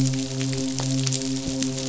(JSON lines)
{"label": "biophony, midshipman", "recorder": "SoundTrap 500"}